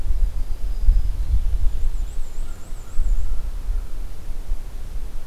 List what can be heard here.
Black-throated Green Warbler, Black-and-white Warbler, American Crow